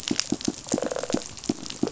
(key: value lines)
label: biophony, rattle response
recorder: SoundTrap 500